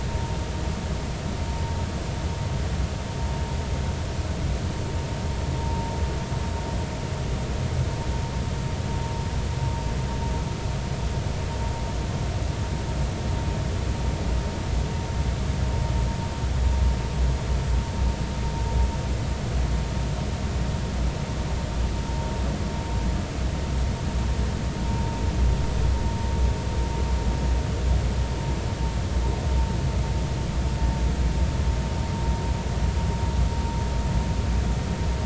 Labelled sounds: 5.6	5.9	vessel noise, 0.86 to 0.96 kHz

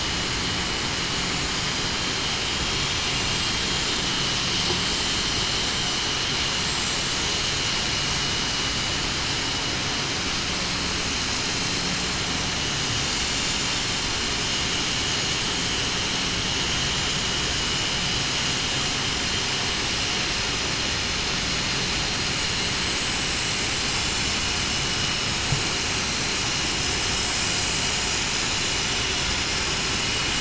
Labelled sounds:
4.0	4.5	vessel noise, 2.9 to 3.0 kHz

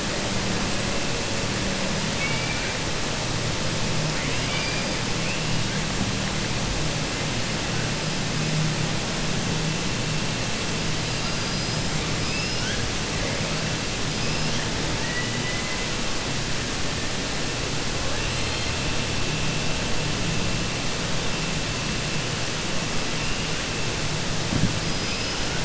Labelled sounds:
2.1	2.7	killer whale, 1.4 to 3.5 kHz
4.1	4.9	killer whale, 1.5 to 4.9 kHz
11.0	11.8	killer whale, 4.0 to 5.1 kHz
12.2	12.8	killer whale, 1.4 to 6.1 kHz
14.9	15.8	killer whale, 1.1 to 3.0 kHz

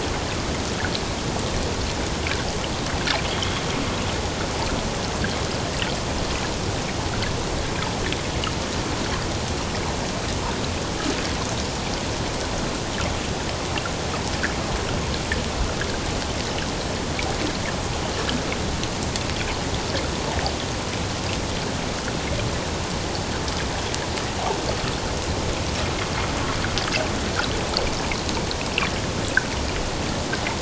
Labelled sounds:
3.3	3.6	water noise, 3.0 to 3.4 kHz

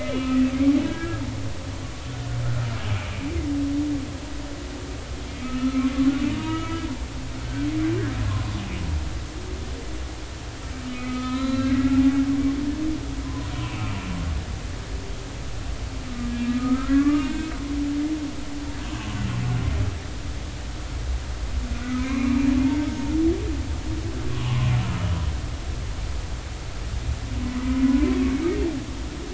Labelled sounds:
0.0	0.4	humpback whale, 1.2 to 2.7 kHz
0.8	2.4	humpback whale, 1.4 to 1.7 kHz
5.2	5.9	humpback whale, 1.2 to 2.4 kHz
6.3	6.8	humpback whale, 0.90 to 2.3 kHz
10.9	11.7	humpback whale, 0.96 to 4.0 kHz
13.2	13.5	humpback whale, 0.93 to 1.1 kHz
16.3	17.5	humpback whale, 1.0 to 3.9 kHz
21.8	22.4	humpback whale, 1.2 to 2.5 kHz
24.3	24.7	humpback whale, 0.96 to 1.2 kHz

